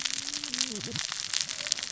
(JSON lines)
{"label": "biophony, cascading saw", "recorder": "SoundTrap 600 or HydroMoth"}